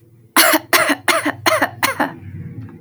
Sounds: Cough